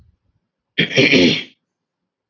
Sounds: Throat clearing